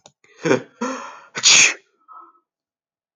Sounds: Sneeze